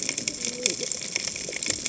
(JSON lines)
{"label": "biophony, cascading saw", "recorder": "HydroMoth"}